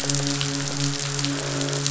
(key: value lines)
label: biophony, midshipman
recorder: SoundTrap 500

label: biophony, croak
recorder: SoundTrap 500